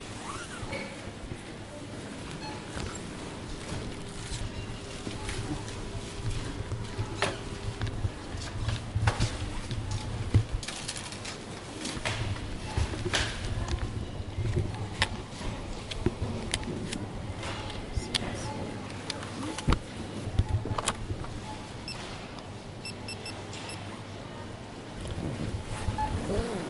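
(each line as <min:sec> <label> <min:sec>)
0:00.1 A cash register beeps repeatedly in the background. 0:26.7
0:00.1 Items are being placed into and removed from a shopping cart. 0:26.7
0:00.2 A zipper sliding smoothly with a continuous metallic sound. 0:01.0
0:18.3 A person is speaking faintly and muffled in the background. 0:20.4
0:21.7 Rapid beeping sounds occur as digits are entered. 0:24.0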